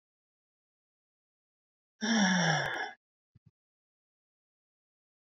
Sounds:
Sigh